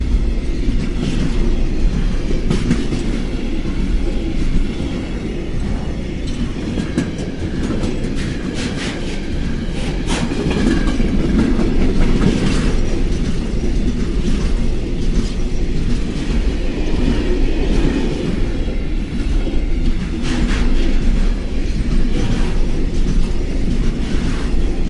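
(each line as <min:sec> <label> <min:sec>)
0:00.0 Train moving over track connections. 0:24.9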